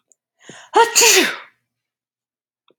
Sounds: Sneeze